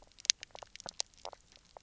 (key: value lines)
label: biophony, knock croak
recorder: SoundTrap 300